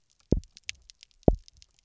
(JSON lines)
{"label": "biophony, double pulse", "recorder": "SoundTrap 300"}